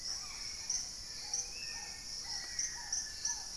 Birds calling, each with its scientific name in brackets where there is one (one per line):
Spot-winged Antshrike (Pygiptila stellaris)
Hauxwell's Thrush (Turdus hauxwelli)
Black-faced Antthrush (Formicarius analis)
Red-bellied Macaw (Orthopsittaca manilatus)
Gray-fronted Dove (Leptotila rufaxilla)
Black-tailed Trogon (Trogon melanurus)